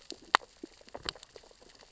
{"label": "biophony, sea urchins (Echinidae)", "recorder": "SoundTrap 600 or HydroMoth"}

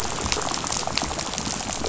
{"label": "biophony, rattle", "recorder": "SoundTrap 500"}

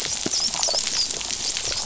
{"label": "biophony", "recorder": "SoundTrap 500"}
{"label": "biophony, dolphin", "recorder": "SoundTrap 500"}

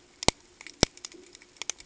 {"label": "ambient", "recorder": "HydroMoth"}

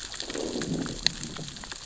{"label": "biophony, growl", "recorder": "SoundTrap 600 or HydroMoth"}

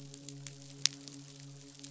{"label": "biophony, midshipman", "recorder": "SoundTrap 500"}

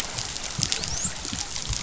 {"label": "biophony, dolphin", "recorder": "SoundTrap 500"}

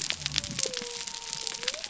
{"label": "biophony", "recorder": "SoundTrap 300"}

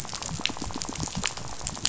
{"label": "biophony, rattle", "recorder": "SoundTrap 500"}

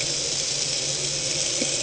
{"label": "anthrophony, boat engine", "recorder": "HydroMoth"}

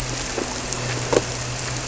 {"label": "anthrophony, boat engine", "recorder": "SoundTrap 300"}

